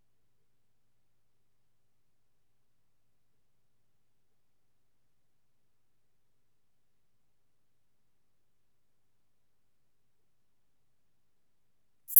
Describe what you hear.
Eupholidoptera latens, an orthopteran